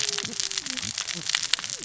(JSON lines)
{"label": "biophony, cascading saw", "recorder": "SoundTrap 600 or HydroMoth"}